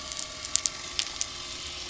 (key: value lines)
label: anthrophony, boat engine
recorder: SoundTrap 300